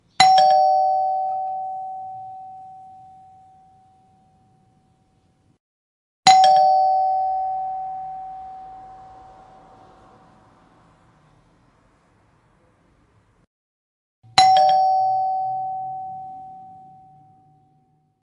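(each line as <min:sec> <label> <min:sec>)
0:00.2 A doorbell rings with an echo at the end. 0:01.3
0:01.3 A doorbell rings, and its echo fades away. 0:06.2
0:06.2 A doorbell rings with an echo at the end. 0:07.3
0:07.3 A doorbell rings, and its echo fades away. 0:14.3
0:14.3 A doorbell rings with an echo at the end. 0:15.4
0:15.4 A doorbell rings, and its echo fades away. 0:18.2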